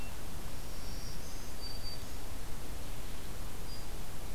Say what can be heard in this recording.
Black-throated Green Warbler